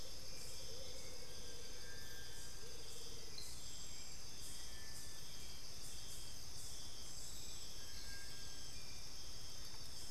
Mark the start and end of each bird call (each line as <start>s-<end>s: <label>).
0.0s-3.5s: Amazonian Motmot (Momotus momota)
0.0s-10.1s: Hauxwell's Thrush (Turdus hauxwelli)
1.5s-10.1s: Little Tinamou (Crypturellus soui)